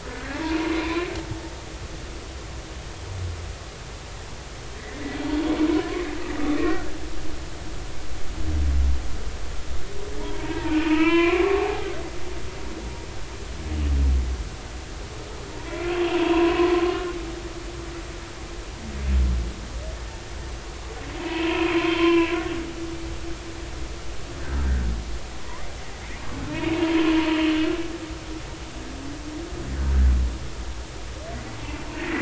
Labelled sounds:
0.1	1.1	humpback whale, 0.90 to 2.6 kHz
6.6	6.9	humpback whale, 1.3 to 2.0 kHz
10.2	11.9	humpback whale, 0.80 to 3.1 kHz
15.5	16.7	humpback whale, 0.90 to 3.3 kHz
21.2	22.4	humpback whale, 0.96 to 3.2 kHz
24.6	24.9	humpback whale, 1.5 to 1.6 kHz
26.5	26.8	humpback whale, 2.1 to 2.7 kHz

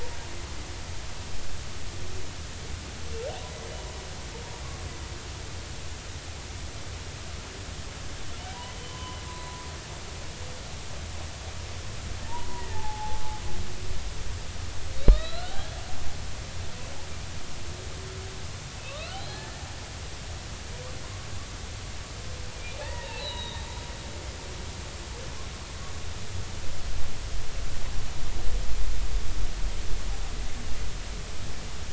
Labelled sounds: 8.9	9.7	humpback whale, 0.93 to 4.1 kHz
12.2	13.2	humpback whale, 0.80 to 1.0 kHz
15.1	15.7	humpback whale, 1.2 to 4.2 kHz
18.7	19.6	humpback whale, 1.1 to 4.4 kHz
22.5	23.6	humpback whale, 0.80 to 4.3 kHz

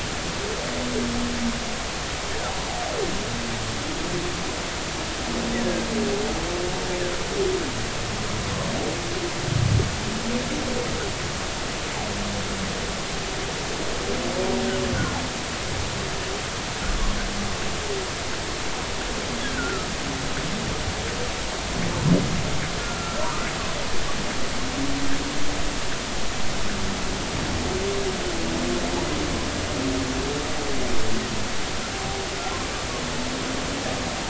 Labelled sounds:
19.5	19.9	humpback whale, 1.2 to 1.6 kHz
22.8	23.3	humpback whale, 1.3 to 1.4 kHz

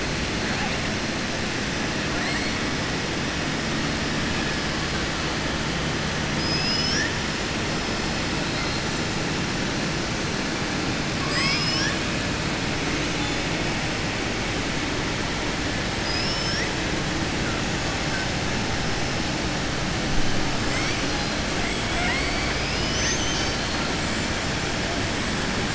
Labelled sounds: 2.2	2.7	killer whale, southern resident, 7.5 to 7.9 kHz
8.4	8.8	killer whale, southern resident, 3.8 to 4.3 kHz
11.1	12.0	killer whale, southern resident, 1.1 to 8.0 kHz
15.9	16.7	killer whale, southern resident, 1.6 to 6.2 kHz
21.6	22.7	killer whale, southern resident, 7.5 to 8.0 kHz

